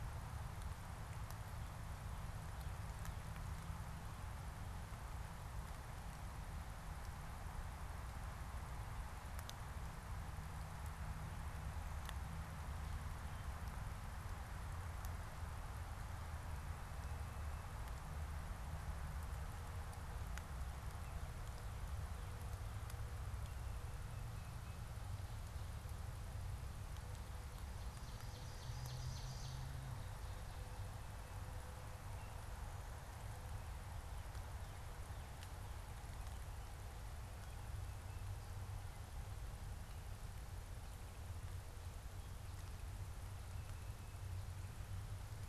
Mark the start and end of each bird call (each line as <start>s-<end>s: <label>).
27.3s-29.9s: Ovenbird (Seiurus aurocapilla)